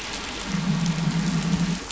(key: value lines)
label: anthrophony, boat engine
recorder: SoundTrap 500